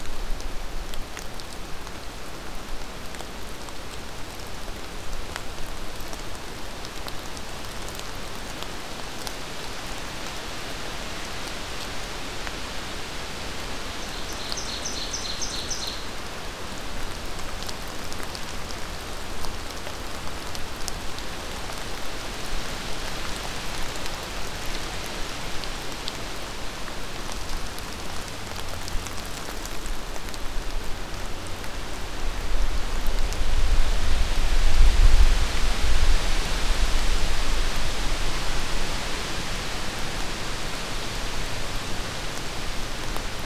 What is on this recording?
Ovenbird